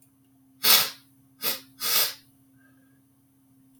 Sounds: Sniff